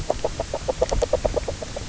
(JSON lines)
{"label": "biophony, grazing", "recorder": "SoundTrap 300"}